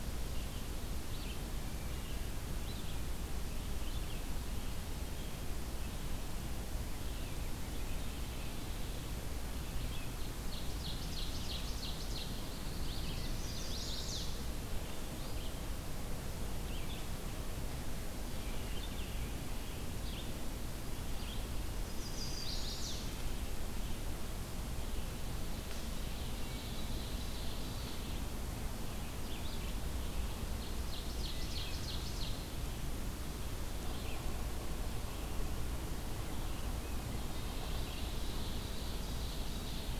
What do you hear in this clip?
Red-eyed Vireo, Ovenbird, Black-throated Blue Warbler, Chestnut-sided Warbler